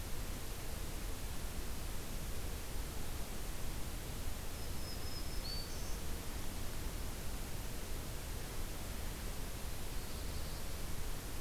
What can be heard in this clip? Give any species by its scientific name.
Setophaga virens, Setophaga caerulescens